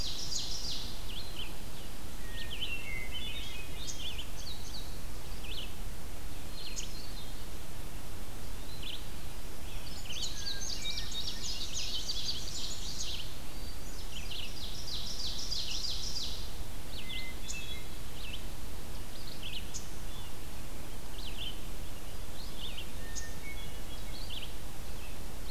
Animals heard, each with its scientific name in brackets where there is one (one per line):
Indigo Bunting (Passerina cyanea)
Ovenbird (Seiurus aurocapilla)
Red-eyed Vireo (Vireo olivaceus)
Hermit Thrush (Catharus guttatus)